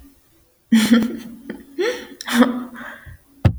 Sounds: Laughter